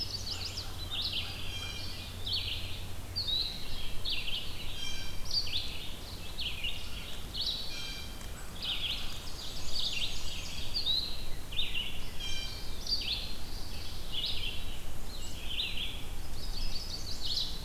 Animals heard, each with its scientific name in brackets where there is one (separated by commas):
Red-eyed Vireo (Vireo olivaceus), Chestnut-sided Warbler (Setophaga pensylvanica), Black-and-white Warbler (Mniotilta varia), Ovenbird (Seiurus aurocapilla), Blue Jay (Cyanocitta cristata), Eastern Wood-Pewee (Contopus virens)